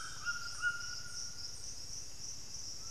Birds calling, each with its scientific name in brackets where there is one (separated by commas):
Amazonian Grosbeak (Cyanoloxia rothschildii), White-throated Toucan (Ramphastos tucanus)